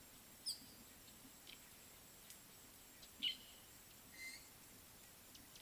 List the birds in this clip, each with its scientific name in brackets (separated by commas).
Red-headed Weaver (Anaplectes rubriceps), Fork-tailed Drongo (Dicrurus adsimilis)